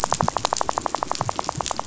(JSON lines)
{"label": "biophony, rattle", "recorder": "SoundTrap 500"}